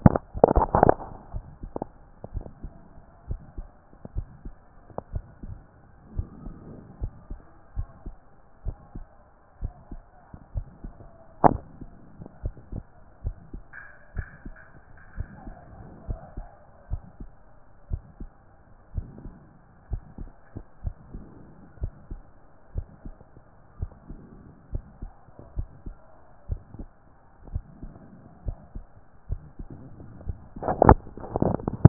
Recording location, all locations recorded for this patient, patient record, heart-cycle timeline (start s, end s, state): aortic valve (AV)
aortic valve (AV)+pulmonary valve (PV)+tricuspid valve (TV)+mitral valve (MV)
#Age: Child
#Sex: Male
#Height: 145.0 cm
#Weight: 51.8 kg
#Pregnancy status: False
#Murmur: Absent
#Murmur locations: nan
#Most audible location: nan
#Systolic murmur timing: nan
#Systolic murmur shape: nan
#Systolic murmur grading: nan
#Systolic murmur pitch: nan
#Systolic murmur quality: nan
#Diastolic murmur timing: nan
#Diastolic murmur shape: nan
#Diastolic murmur grading: nan
#Diastolic murmur pitch: nan
#Diastolic murmur quality: nan
#Outcome: Abnormal
#Campaign: 2014 screening campaign
0.00	2.34	unannotated
2.34	2.46	S1
2.46	2.62	systole
2.62	2.72	S2
2.72	3.28	diastole
3.28	3.40	S1
3.40	3.58	systole
3.58	3.68	S2
3.68	4.16	diastole
4.16	4.28	S1
4.28	4.44	systole
4.44	4.54	S2
4.54	5.12	diastole
5.12	5.24	S1
5.24	5.46	systole
5.46	5.56	S2
5.56	6.16	diastole
6.16	6.28	S1
6.28	6.46	systole
6.46	6.56	S2
6.56	7.00	diastole
7.00	7.12	S1
7.12	7.30	systole
7.30	7.40	S2
7.40	7.76	diastole
7.76	7.88	S1
7.88	8.06	systole
8.06	8.14	S2
8.14	8.64	diastole
8.64	8.76	S1
8.76	8.96	systole
8.96	9.06	S2
9.06	9.62	diastole
9.62	9.74	S1
9.74	9.92	systole
9.92	10.00	S2
10.00	10.54	diastole
10.54	10.66	S1
10.66	10.84	systole
10.84	10.94	S2
10.94	11.47	diastole
11.47	11.60	S1
11.60	11.80	systole
11.80	11.90	S2
11.90	12.44	diastole
12.44	12.54	S1
12.54	12.72	systole
12.72	12.84	S2
12.84	13.24	diastole
13.24	13.36	S1
13.36	13.54	systole
13.54	13.62	S2
13.62	14.16	diastole
14.16	14.28	S1
14.28	14.46	systole
14.46	14.56	S2
14.56	15.16	diastole
15.16	15.28	S1
15.28	15.46	systole
15.46	15.56	S2
15.56	16.08	diastole
16.08	16.20	S1
16.20	16.36	systole
16.36	16.46	S2
16.46	16.90	diastole
16.90	17.02	S1
17.02	17.20	systole
17.20	17.30	S2
17.30	17.90	diastole
17.90	18.02	S1
18.02	18.20	systole
18.20	18.30	S2
18.30	18.94	diastole
18.94	19.08	S1
19.08	19.24	systole
19.24	19.34	S2
19.34	19.90	diastole
19.90	20.02	S1
20.02	20.20	systole
20.20	20.30	S2
20.30	20.84	diastole
20.84	20.96	S1
20.96	21.14	systole
21.14	21.24	S2
21.24	21.80	diastole
21.80	21.92	S1
21.92	22.10	systole
22.10	22.20	S2
22.20	22.76	diastole
22.76	22.86	S1
22.86	23.06	systole
23.06	23.14	S2
23.14	23.80	diastole
23.80	23.92	S1
23.92	24.10	systole
24.10	24.20	S2
24.20	24.72	diastole
24.72	24.84	S1
24.84	25.02	systole
25.02	25.12	S2
25.12	25.56	diastole
25.56	25.68	S1
25.68	25.86	systole
25.86	25.96	S2
25.96	26.48	diastole
26.48	26.60	S1
26.60	26.78	systole
26.78	26.88	S2
26.88	27.50	diastole
27.50	27.64	S1
27.64	27.82	systole
27.82	27.92	S2
27.92	28.46	diastole
28.46	28.58	S1
28.58	28.74	systole
28.74	28.86	S2
28.86	29.30	diastole
29.30	31.89	unannotated